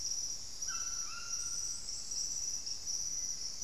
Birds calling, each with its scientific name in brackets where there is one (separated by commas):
White-throated Toucan (Ramphastos tucanus), Black-faced Antthrush (Formicarius analis)